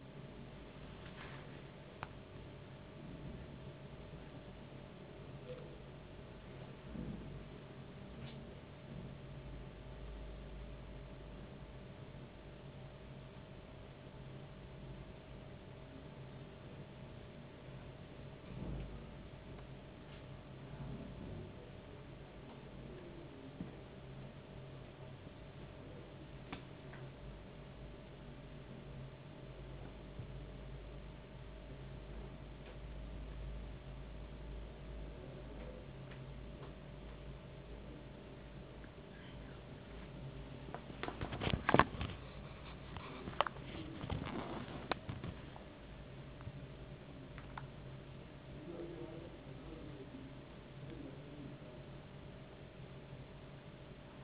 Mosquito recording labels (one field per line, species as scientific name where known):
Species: no mosquito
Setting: insect culture